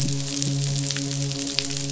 {"label": "biophony, midshipman", "recorder": "SoundTrap 500"}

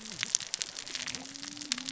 {"label": "biophony, cascading saw", "recorder": "SoundTrap 600 or HydroMoth"}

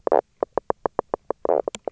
{"label": "biophony, knock croak", "recorder": "SoundTrap 300"}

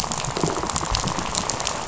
{"label": "biophony, rattle", "recorder": "SoundTrap 500"}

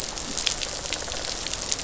{"label": "biophony, rattle response", "recorder": "SoundTrap 500"}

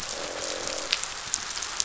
{"label": "biophony, croak", "recorder": "SoundTrap 500"}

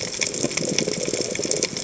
{"label": "biophony, chatter", "recorder": "HydroMoth"}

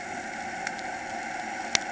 {"label": "anthrophony, boat engine", "recorder": "HydroMoth"}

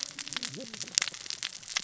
{"label": "biophony, cascading saw", "recorder": "SoundTrap 600 or HydroMoth"}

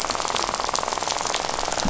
{"label": "biophony, rattle", "recorder": "SoundTrap 500"}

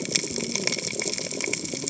{"label": "biophony, cascading saw", "recorder": "HydroMoth"}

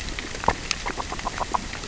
{"label": "biophony, grazing", "recorder": "SoundTrap 600 or HydroMoth"}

